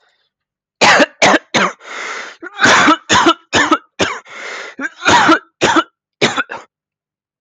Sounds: Cough